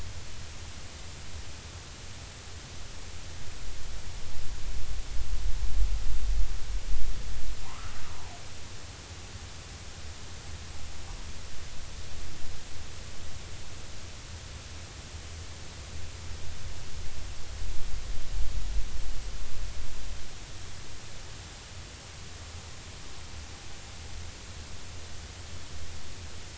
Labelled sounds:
7.6	7.9	humpback whale, 0.80 to 1.4 kHz

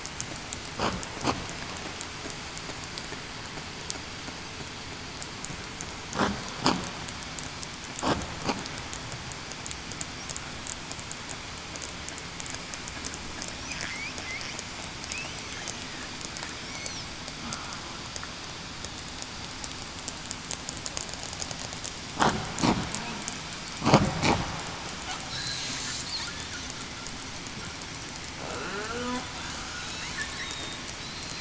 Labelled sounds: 16.6	17.0	killer whale, southern resident, 5.2 to 6.1 kHz
28.7	29.2	killer whale, southern resident, 0.38 to 0.52 kHz
30.4	31.4	killer whale, southern resident, 3.6 to 4.2 kHz

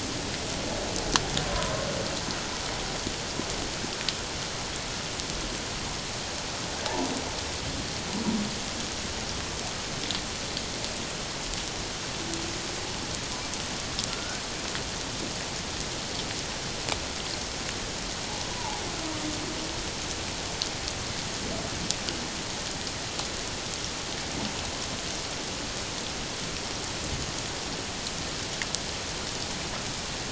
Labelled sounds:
14.1	14.4	humpback whale, 1.3 to 1.6 kHz
18.6	18.8	humpback whale, 0.78 to 1.0 kHz

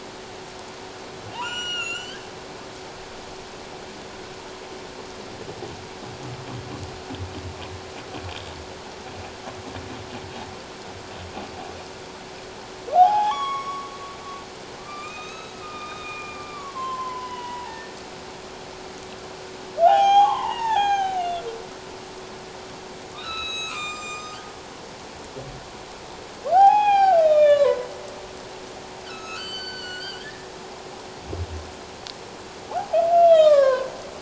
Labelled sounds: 1.3	2.2	humpback whale, 0.78 to 7.6 kHz
12.9	13.9	humpback whale, 0.78 to 5.7 kHz
14.8	18.0	humpback whale, 0.78 to 6.5 kHz
19.8	21.4	humpback whale, 0.78 to 6.6 kHz
23.1	24.4	humpback whale, 0.97 to 7.9 kHz
26.5	27.9	humpback whale, 0.78 to 4.0 kHz
29.1	30.5	humpback whale, 1.2 to 7.7 kHz
32.7	33.9	humpback whale, 0.78 to 4.0 kHz

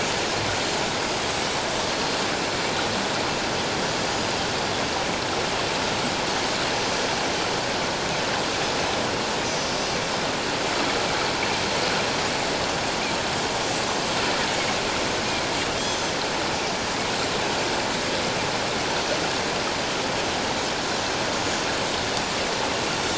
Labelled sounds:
6.9	7.2	Pacific white-sided dolphin, 5.6 to 5.8 kHz
9.5	9.7	Pacific white-sided dolphin, 5.6 to 6.1 kHz
14.5	14.8	Pacific white-sided dolphin, 2.1 to 6.7 kHz
15.8	16.2	Pacific white-sided dolphin, 6.0 to 6.3 kHz
19.0	19.2	Pacific white-sided dolphin, 5.9 to 6.2 kHz

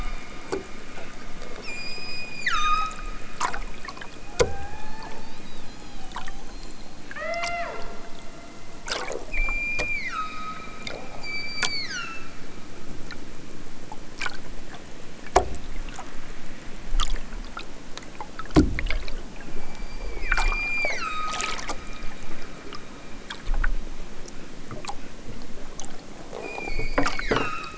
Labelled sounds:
1.6	3.1	killer whale, southern Alaska resident, 0.78 to 8.0 kHz
4.3	5.1	killer whale, southern Alaska resident, 0.41 to 4.9 kHz
7.0	7.8	killer whale, southern Alaska resident, 0.41 to 5.4 kHz
9.3	10.7	killer whale, southern Alaska resident, 0.87 to 7.4 kHz
11.1	12.4	killer whale, southern Alaska resident, 1.0 to 8.0 kHz
19.5	21.5	killer whale, southern Alaska resident, 0.60 to 8.0 kHz
26.4	27.7	killer whale, southern Alaska resident, 0.87 to 8.0 kHz

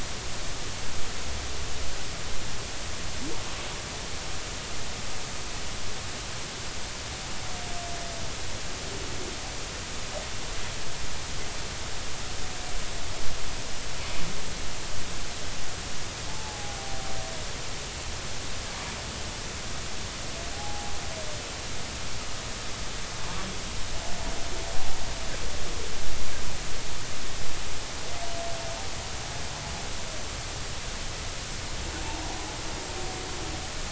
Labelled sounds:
16.3	16.8	humpback whale, 0.80 to 0.90 kHz
20.5	20.9	humpback whale, 0.80 to 0.90 kHz

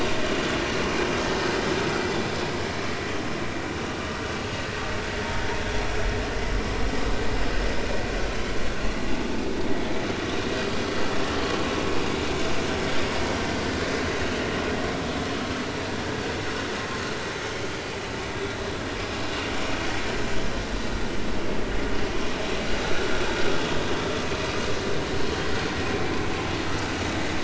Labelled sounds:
8.3	8.6	vessel noise, 3.0 to 3.2 kHz
9.0	9.3	vessel noise, 0.80 to 0.96 kHz

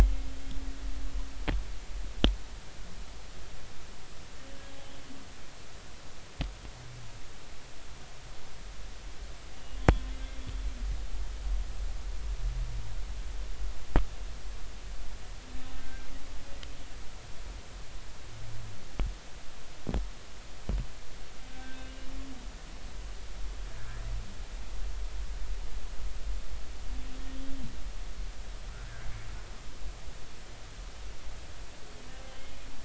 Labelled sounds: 9.8	10.0	humpback whale, 3.3 to 3.4 kHz
15.8	16.1	humpback whale, 1.5 to 1.6 kHz
21.5	21.9	humpback whale, 1.5 to 1.6 kHz
32.3	32.6	humpback whale, 3.0 to 3.3 kHz

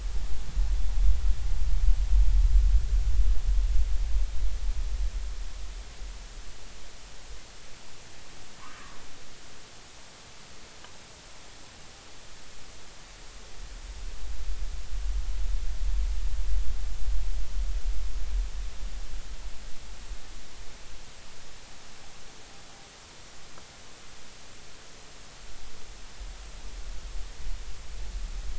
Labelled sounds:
8.6	8.8	humpback whale, 0.96 to 1.3 kHz

